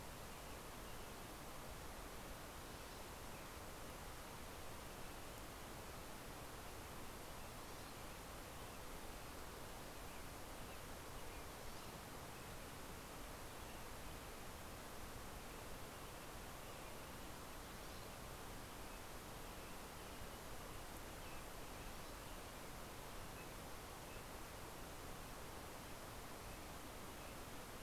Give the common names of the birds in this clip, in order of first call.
Green-tailed Towhee, Townsend's Solitaire